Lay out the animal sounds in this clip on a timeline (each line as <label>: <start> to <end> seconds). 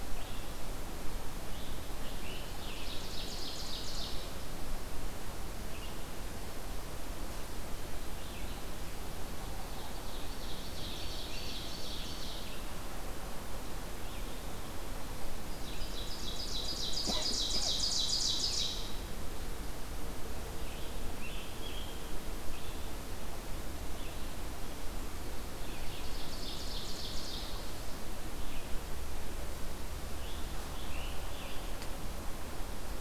Red-eyed Vireo (Vireo olivaceus): 0.0 to 8.8 seconds
Ovenbird (Seiurus aurocapilla): 2.5 to 4.3 seconds
Ovenbird (Seiurus aurocapilla): 10.2 to 12.6 seconds
Red-eyed Vireo (Vireo olivaceus): 12.3 to 24.4 seconds
Ovenbird (Seiurus aurocapilla): 15.5 to 18.9 seconds
Scarlet Tanager (Piranga olivacea): 20.5 to 22.2 seconds
Ovenbird (Seiurus aurocapilla): 25.6 to 27.6 seconds
Scarlet Tanager (Piranga olivacea): 30.1 to 32.0 seconds